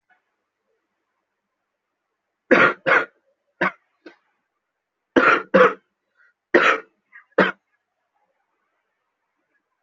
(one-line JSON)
{"expert_labels": [{"quality": "ok", "cough_type": "dry", "dyspnea": false, "wheezing": false, "stridor": false, "choking": false, "congestion": false, "nothing": true, "diagnosis": "COVID-19", "severity": "mild"}], "age": 25, "gender": "male", "respiratory_condition": false, "fever_muscle_pain": true, "status": "COVID-19"}